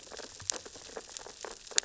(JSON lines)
{"label": "biophony, sea urchins (Echinidae)", "recorder": "SoundTrap 600 or HydroMoth"}